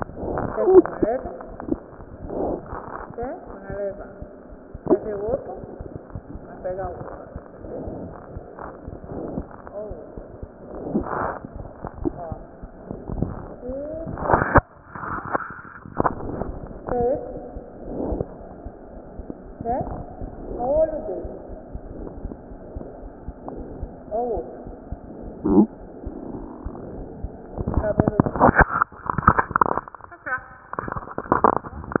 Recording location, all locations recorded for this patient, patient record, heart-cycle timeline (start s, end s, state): aortic valve (AV)
aortic valve (AV)+pulmonary valve (PV)+tricuspid valve (TV)+mitral valve (MV)
#Age: Child
#Sex: Male
#Height: 90.0 cm
#Weight: 14.6 kg
#Pregnancy status: False
#Murmur: Unknown
#Murmur locations: nan
#Most audible location: nan
#Systolic murmur timing: nan
#Systolic murmur shape: nan
#Systolic murmur grading: nan
#Systolic murmur pitch: nan
#Systolic murmur quality: nan
#Diastolic murmur timing: nan
#Diastolic murmur shape: nan
#Diastolic murmur grading: nan
#Diastolic murmur pitch: nan
#Diastolic murmur quality: nan
#Outcome: Abnormal
#Campaign: 2015 screening campaign
0.00	21.26	unannotated
21.26	21.47	diastole
21.47	21.58	S1
21.58	21.72	systole
21.72	21.79	S2
21.79	21.97	diastole
21.97	22.09	S1
22.09	22.22	systole
22.22	22.30	S2
22.30	22.50	diastole
22.50	22.59	S1
22.59	22.73	systole
22.73	22.82	S2
22.82	23.00	diastole
23.00	23.11	S1
23.11	23.25	systole
23.25	23.32	S2
23.32	23.55	diastole
23.55	23.63	S1
23.63	23.80	systole
23.80	23.88	S2
23.88	24.05	diastole
24.05	24.17	S1
24.17	24.33	systole
24.33	24.43	S2
24.43	24.62	diastole
24.62	24.75	S1
24.75	24.89	systole
24.89	24.97	S2
24.97	25.20	diastole
25.20	25.31	S1
25.31	25.74	unannotated
25.74	25.89	S1
25.89	26.03	systole
26.03	26.12	S2
26.12	26.37	diastole
26.37	26.50	S1
26.50	26.62	systole
26.62	26.71	S2
26.71	26.93	diastole
26.93	27.08	S1
27.08	32.00	unannotated